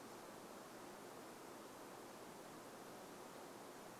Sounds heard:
forest ambience